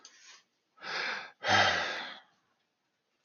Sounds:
Sigh